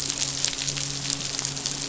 {"label": "biophony, midshipman", "recorder": "SoundTrap 500"}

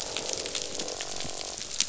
{"label": "biophony, croak", "recorder": "SoundTrap 500"}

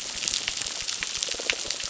{"label": "biophony, crackle", "recorder": "SoundTrap 600"}
{"label": "biophony", "recorder": "SoundTrap 600"}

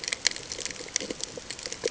{"label": "ambient", "recorder": "HydroMoth"}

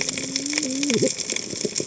{"label": "biophony, cascading saw", "recorder": "HydroMoth"}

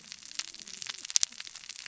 {"label": "biophony, cascading saw", "recorder": "SoundTrap 600 or HydroMoth"}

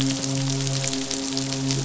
{"label": "biophony, midshipman", "recorder": "SoundTrap 500"}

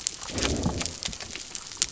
{"label": "biophony", "recorder": "SoundTrap 300"}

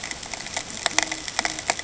{"label": "ambient", "recorder": "HydroMoth"}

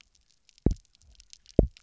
{"label": "biophony, double pulse", "recorder": "SoundTrap 300"}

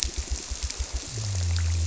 {"label": "biophony", "recorder": "SoundTrap 300"}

